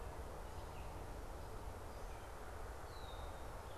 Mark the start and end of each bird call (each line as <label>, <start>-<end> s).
unidentified bird, 0.0-3.8 s
Red-winged Blackbird (Agelaius phoeniceus), 2.8-3.4 s